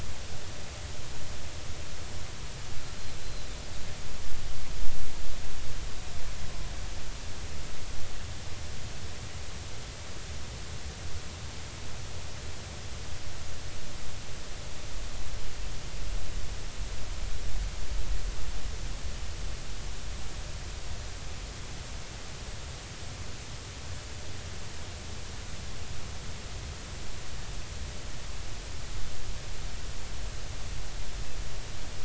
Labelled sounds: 3.2	3.5	killer whale, Bigg's (transient), 3.9 to 4.2 kHz

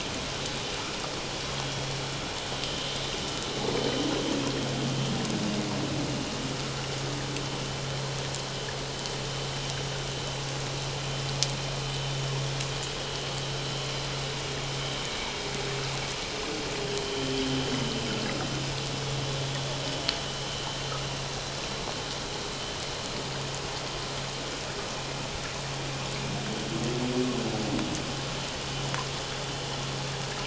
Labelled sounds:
2.6	2.9	vessel noise, 3.0 to 3.1 kHz

